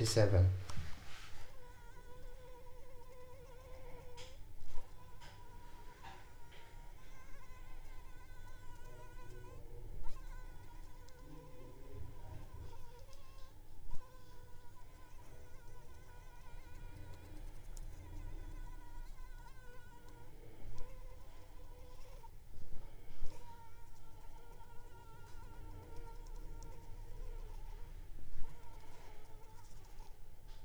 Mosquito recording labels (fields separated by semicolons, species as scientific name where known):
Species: Anopheles funestus s.s.; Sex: female; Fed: unfed; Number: one; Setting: cup